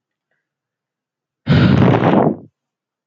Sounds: Sigh